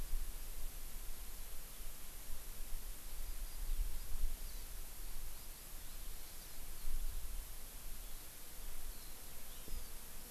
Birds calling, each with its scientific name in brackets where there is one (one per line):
Eurasian Skylark (Alauda arvensis)
Hawaii Amakihi (Chlorodrepanis virens)